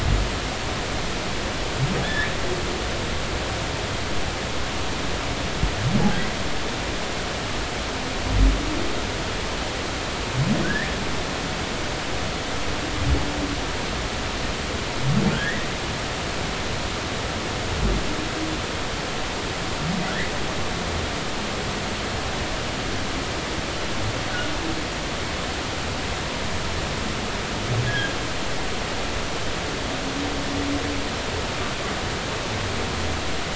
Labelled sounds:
2.0	2.3	humpback whale, 1.4 to 3.6 kHz
10.6	10.9	humpback whale, 1.4 to 1.9 kHz
15.3	15.7	humpback whale, 1.4 to 2.0 kHz
27.9	28.1	humpback whale, 1.5 to 1.7 kHz

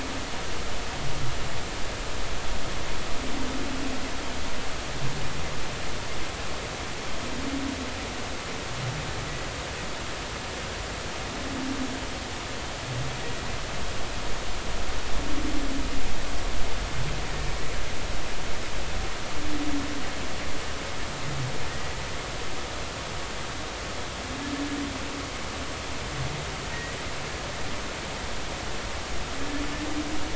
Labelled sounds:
26.7	27.0	humpback whale, 1.8 to 2.0 kHz

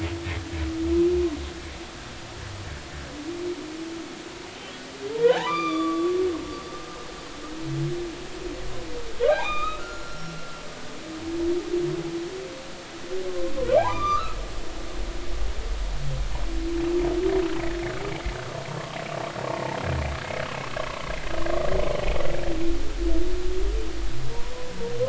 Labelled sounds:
5.1	6.1	humpback whale, 0.80 to 6.0 kHz
9.2	10.6	humpback whale, 1.1 to 4.1 kHz
13.3	14.4	humpback whale, 0.80 to 4.9 kHz
19.5	19.8	humpback whale, 0.83 to 0.99 kHz

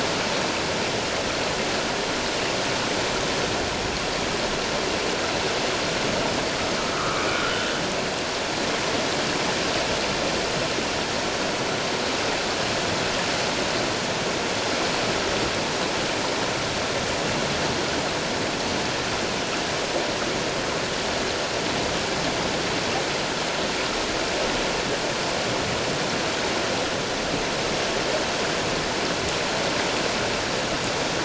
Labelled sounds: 6.9	7.7	humpback whale, 1.1 to 1.5 kHz

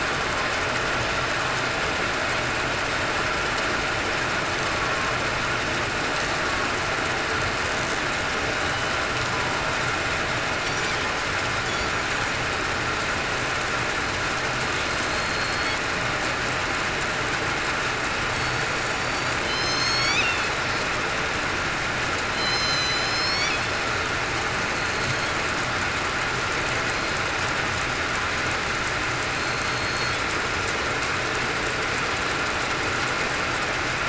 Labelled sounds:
11.7	12.4	killer whale, southern resident, 7.9 to 8.0 kHz
15.1	15.8	killer whale, southern resident, 4.2 to 4.5 kHz
18.3	20.2	killer whale, southern resident, 3.0 to 4.6 kHz
22.3	23.5	killer whale, southern resident, 3.0 to 6.3 kHz
29.3	30.1	killer whale, southern resident, 4.2 to 6.5 kHz

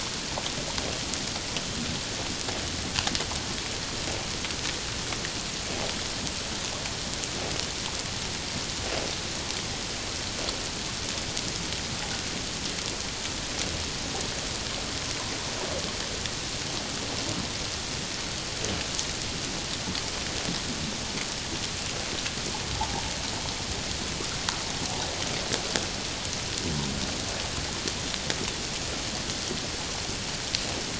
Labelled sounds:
22.7	23.0	water noise, 0.78 to 0.97 kHz

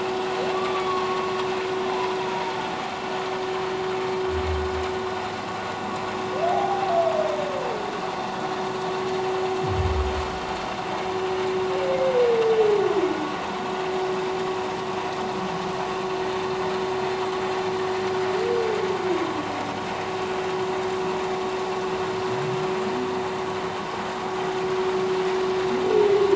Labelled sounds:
0.5	1.3	humpback whale, 0.97 to 1.2 kHz
2.3	2.5	humpback whale, 0.88 to 0.97 kHz
6.5	6.9	humpback whale, 0.78 to 0.84 kHz

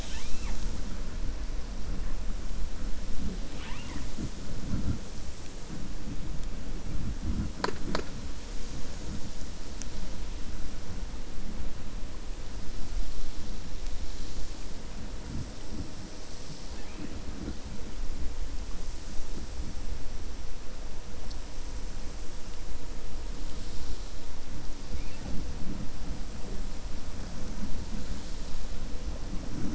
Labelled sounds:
3.4	4.1	killer whale, 0.90 to 3.6 kHz

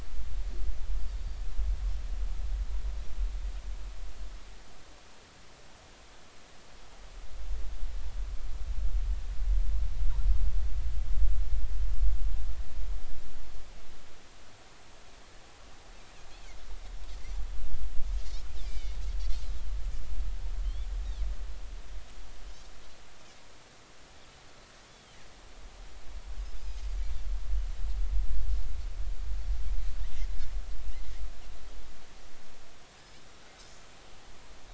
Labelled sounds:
18.6	19.0	Pacific white-sided dolphin, 2.1 to 2.5 kHz
20.6	20.9	Pacific white-sided dolphin, 3.0 to 3.6 kHz
24.9	25.2	Pacific white-sided dolphin, 2.8 to 3.5 kHz
26.8	27.0	Pacific white-sided dolphin, 4.5 to 4.7 kHz

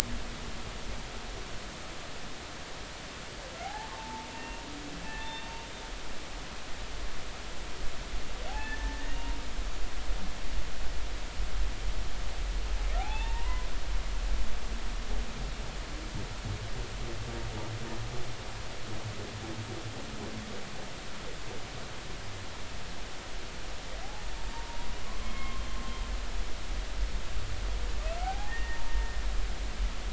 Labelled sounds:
3.6	4.6	humpback whale, 0.80 to 2.8 kHz
5.2	5.5	humpback whale, 3.5 to 3.7 kHz
8.5	9.2	humpback whale, 0.80 to 2.0 kHz
13.0	13.7	humpback whale, 0.80 to 3.7 kHz
24.5	25.6	humpback whale, 0.86 to 2.2 kHz
28.2	29.2	humpback whale, 0.80 to 1.9 kHz

